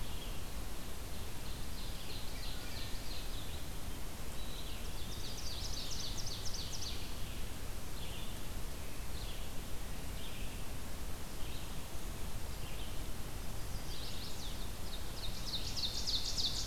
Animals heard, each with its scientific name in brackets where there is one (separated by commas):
Red-eyed Vireo (Vireo olivaceus), Chestnut-sided Warbler (Setophaga pensylvanica), Ovenbird (Seiurus aurocapilla), Eastern Wood-Pewee (Contopus virens)